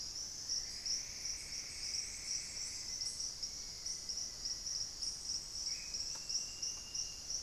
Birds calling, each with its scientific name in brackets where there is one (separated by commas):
Plumbeous Antbird (Myrmelastes hyperythrus), Black-faced Antthrush (Formicarius analis)